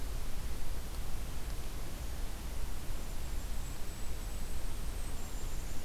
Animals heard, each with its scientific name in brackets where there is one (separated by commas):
Golden-crowned Kinglet (Regulus satrapa)